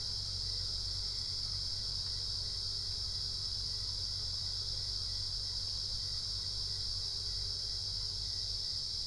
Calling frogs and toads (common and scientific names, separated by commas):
none